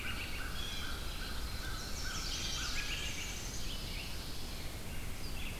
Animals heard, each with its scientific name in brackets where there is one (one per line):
Pine Warbler (Setophaga pinus)
Blue Jay (Cyanocitta cristata)
American Crow (Corvus brachyrhynchos)
Red-eyed Vireo (Vireo olivaceus)
Chestnut-sided Warbler (Setophaga pensylvanica)
Black-and-white Warbler (Mniotilta varia)